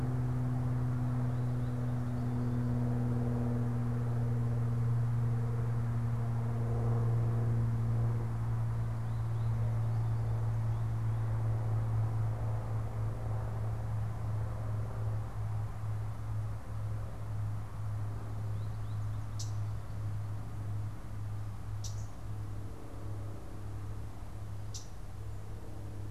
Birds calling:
Common Yellowthroat (Geothlypis trichas)

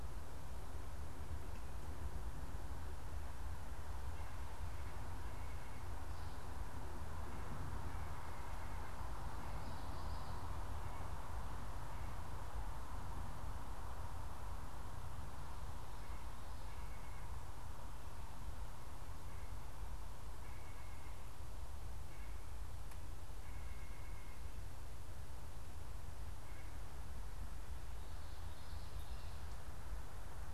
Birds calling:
White-breasted Nuthatch (Sitta carolinensis)
Common Yellowthroat (Geothlypis trichas)

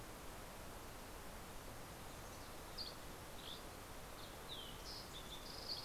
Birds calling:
Dusky Flycatcher (Empidonax oberholseri)
Fox Sparrow (Passerella iliaca)

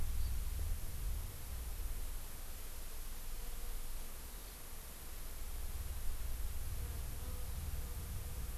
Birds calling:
Hawaii Amakihi (Chlorodrepanis virens)

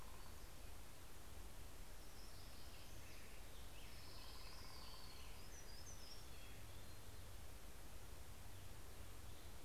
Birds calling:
Hermit Warbler (Setophaga occidentalis)
Hermit Thrush (Catharus guttatus)
Orange-crowned Warbler (Leiothlypis celata)
Black-headed Grosbeak (Pheucticus melanocephalus)

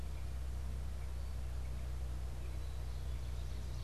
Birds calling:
Ovenbird (Seiurus aurocapilla)
Black-capped Chickadee (Poecile atricapillus)

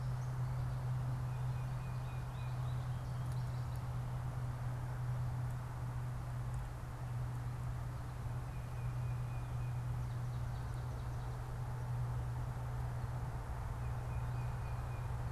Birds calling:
unidentified bird
Tufted Titmouse (Baeolophus bicolor)
American Goldfinch (Spinus tristis)

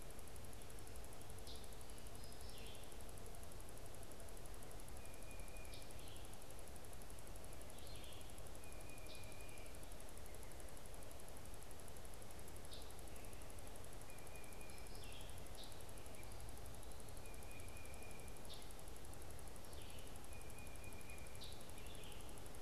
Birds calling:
Scarlet Tanager (Piranga olivacea)
Tufted Titmouse (Baeolophus bicolor)
Red-eyed Vireo (Vireo olivaceus)

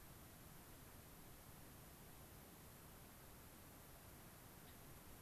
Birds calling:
Gray-crowned Rosy-Finch (Leucosticte tephrocotis)

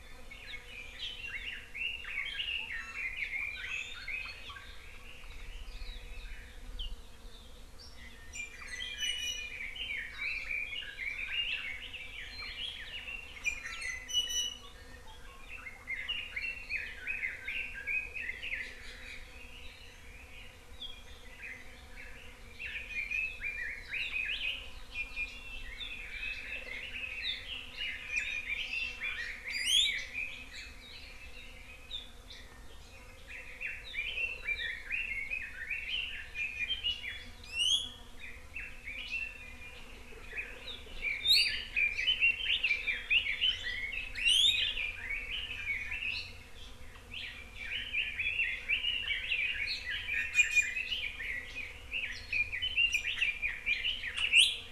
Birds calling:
Red-billed Leiothrix (Leiothrix lutea)
Iiwi (Drepanis coccinea)
Hawaii Amakihi (Chlorodrepanis virens)
Hawaii Akepa (Loxops coccineus)

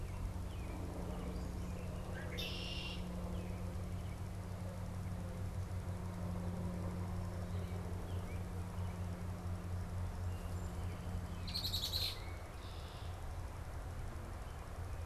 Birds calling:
American Robin (Turdus migratorius)
Red-winged Blackbird (Agelaius phoeniceus)

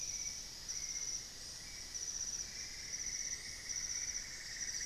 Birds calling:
Cinnamon-throated Woodcreeper (Dendrexetastes rufigula)

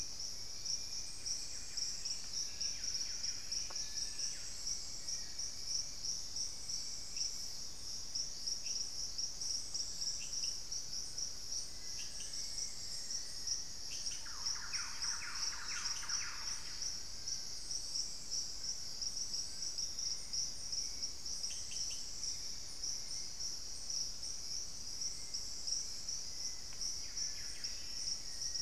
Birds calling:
Buff-breasted Wren (Cantorchilus leucotis)
Hauxwell's Thrush (Turdus hauxwelli)
Thrush-like Wren (Campylorhynchus turdinus)
Long-billed Woodcreeper (Nasica longirostris)
Black-faced Antthrush (Formicarius analis)
unidentified bird

